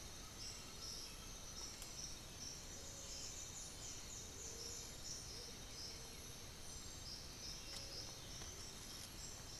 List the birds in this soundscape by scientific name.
Crypturellus undulatus, Momotus momota, Pachyramphus polychopterus